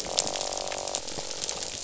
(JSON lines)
{"label": "biophony, croak", "recorder": "SoundTrap 500"}